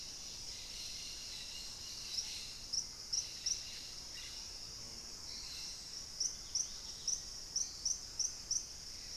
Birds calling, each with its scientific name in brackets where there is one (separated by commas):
Gray Antbird (Cercomacra cinerascens), Dusky-capped Greenlet (Pachysylvia hypoxantha), Black-faced Antthrush (Formicarius analis), Thrush-like Wren (Campylorhynchus turdinus)